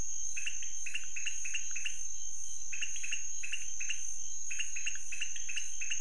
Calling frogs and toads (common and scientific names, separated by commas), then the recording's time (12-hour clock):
pointedbelly frog (Leptodactylus podicipinus)
12:30am